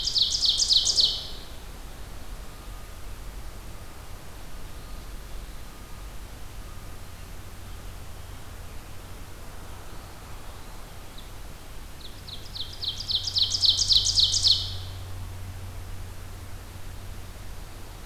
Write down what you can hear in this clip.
Ovenbird, Eastern Wood-Pewee